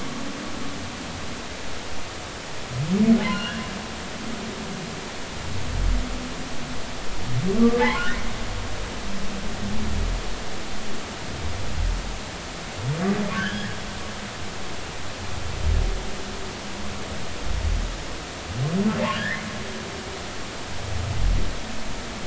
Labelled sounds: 3.2	3.6	humpback whale, 1.4 to 4.3 kHz
7.7	8.1	humpback whale, 0.80 to 3.1 kHz
13.3	13.7	humpback whale, 1.4 to 3.5 kHz
19.1	19.5	humpback whale, 1.5 to 2.2 kHz

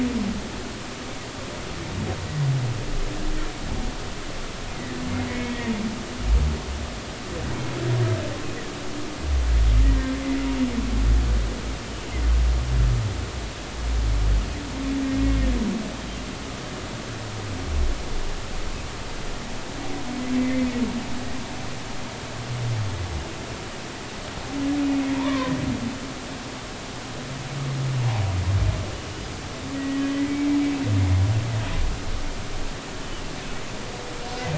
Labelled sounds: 4.7	5.0	humpback whale, 1.7 to 2.1 kHz
5.3	5.6	humpback whale, 2.1 to 2.2 kHz
9.8	10.5	humpback whale, 1.8 to 2.1 kHz
15.2	15.5	humpback whale, 2.1 to 2.2 kHz
20.4	20.7	humpback whale, 1.8 to 2.2 kHz
25.1	25.5	humpback whale, 0.90 to 1.2 kHz
29.7	30.4	humpback whale, 1.8 to 2.0 kHz

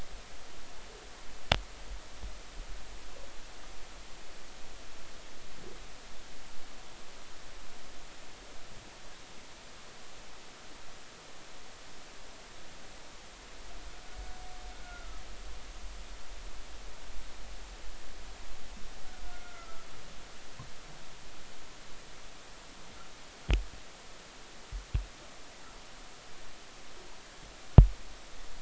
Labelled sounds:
14.8	15.2	humpback whale, 1.2 to 1.5 kHz
19.2	19.9	humpback whale, 1.2 to 1.5 kHz

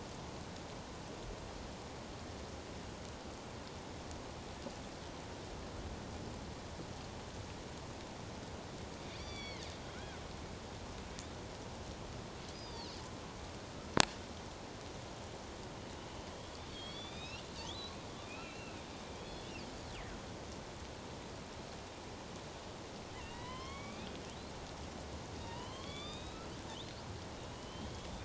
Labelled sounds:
9.1	10.2	killer whale, northern resident, A clan, AB subclan, 1.3 to 5.9 kHz
12.5	13.0	killer whale, northern resident, A clan, AB subclan, 3.9 to 5.0 kHz
16.7	17.8	killer whale, northern resident, A clan, AB subclan, 2.2 to 5.9 kHz
18.3	18.8	killer whale, northern resident, A clan, AB subclan, 2.2 to 2.8 kHz
19.1	19.5	killer whale, northern resident, A clan, AB subclan, 3.1 to 3.5 kHz
23.2	24.1	killer whale, northern resident, A clan, AB subclan, 0.91 to 4.5 kHz
25.4	26.4	killer whale, northern resident, A clan, AB subclan, 0.88 to 4.0 kHz
27.3	28.2	killer whale, northern resident, A clan, AB subclan, 2.8 to 3.7 kHz

